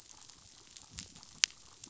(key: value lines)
label: biophony, damselfish
recorder: SoundTrap 500